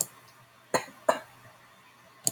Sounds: Cough